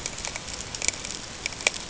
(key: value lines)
label: ambient
recorder: HydroMoth